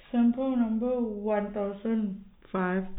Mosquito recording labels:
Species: no mosquito; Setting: cup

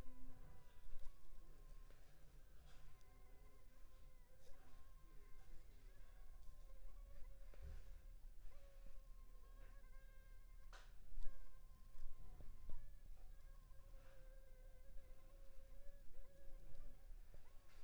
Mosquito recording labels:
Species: Anopheles funestus s.s.; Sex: female; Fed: unfed; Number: one; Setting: cup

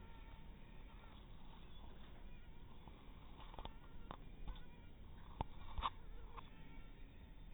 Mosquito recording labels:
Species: mosquito; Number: one; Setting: cup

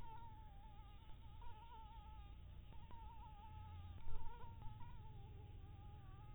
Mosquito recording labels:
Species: Anopheles harrisoni; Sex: female; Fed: blood-fed; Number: one; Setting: cup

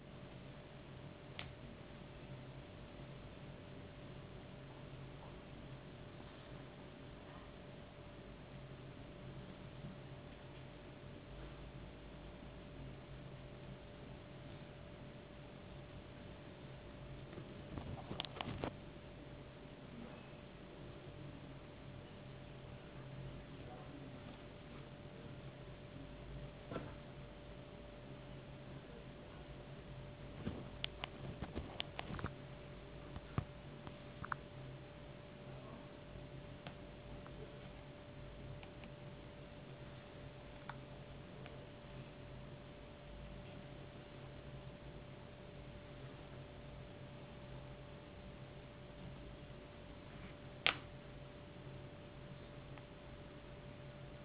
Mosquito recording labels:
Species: no mosquito; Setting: insect culture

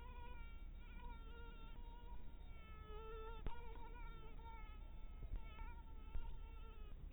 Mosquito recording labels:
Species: mosquito; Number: one; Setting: cup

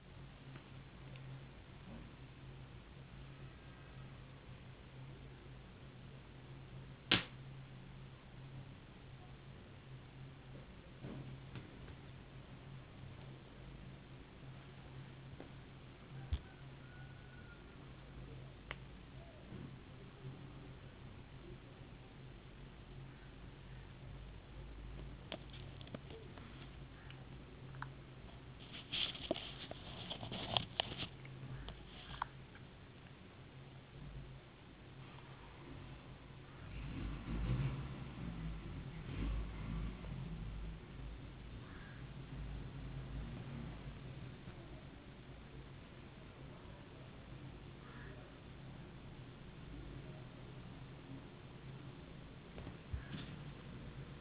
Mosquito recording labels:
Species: no mosquito; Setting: insect culture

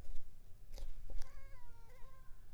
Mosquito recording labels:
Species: Culex pipiens complex; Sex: female; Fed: unfed; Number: one; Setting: cup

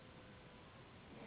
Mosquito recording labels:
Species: Anopheles gambiae s.s.; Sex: female; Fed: unfed; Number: one; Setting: insect culture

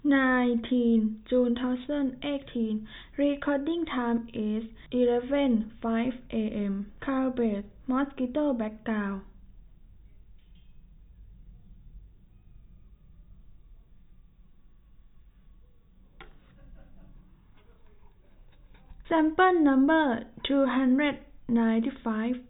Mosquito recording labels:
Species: no mosquito; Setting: cup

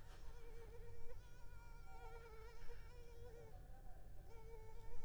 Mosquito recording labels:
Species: Culex pipiens complex; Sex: female; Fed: unfed; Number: one; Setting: cup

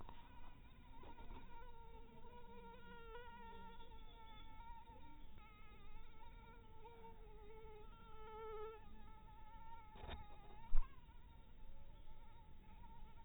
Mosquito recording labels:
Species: mosquito; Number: one; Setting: cup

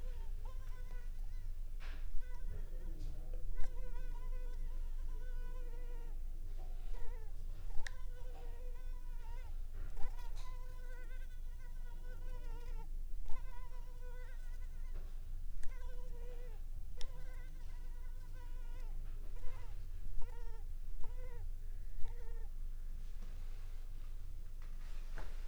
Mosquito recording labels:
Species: Culex pipiens complex; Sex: female; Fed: unfed; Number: one; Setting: cup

